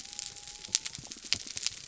{"label": "biophony", "recorder": "SoundTrap 300"}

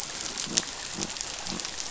{"label": "biophony", "recorder": "SoundTrap 500"}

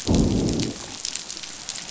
{"label": "biophony, growl", "recorder": "SoundTrap 500"}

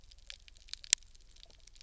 {"label": "anthrophony, boat engine", "recorder": "SoundTrap 300"}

